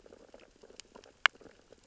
{"label": "biophony, sea urchins (Echinidae)", "recorder": "SoundTrap 600 or HydroMoth"}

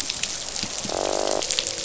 {"label": "biophony, croak", "recorder": "SoundTrap 500"}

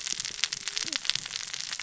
{"label": "biophony, cascading saw", "recorder": "SoundTrap 600 or HydroMoth"}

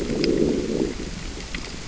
{"label": "biophony, growl", "recorder": "SoundTrap 600 or HydroMoth"}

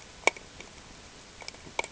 {"label": "ambient", "recorder": "HydroMoth"}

